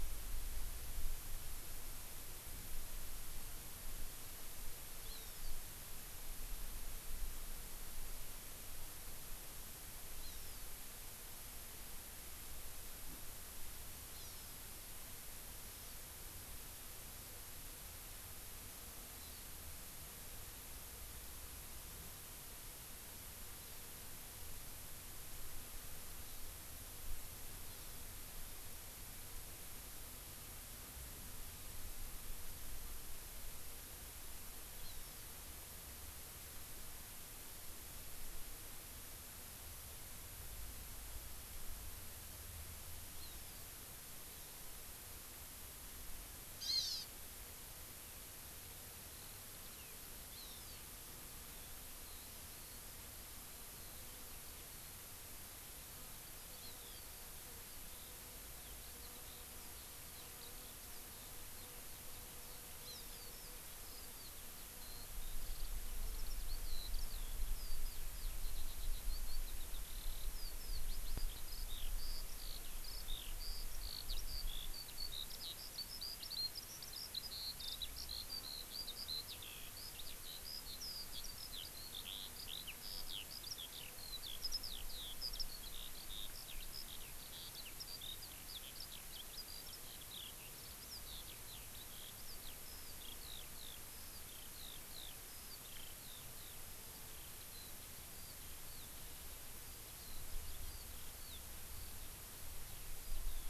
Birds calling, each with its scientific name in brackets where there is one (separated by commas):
Hawaii Amakihi (Chlorodrepanis virens), Eurasian Skylark (Alauda arvensis)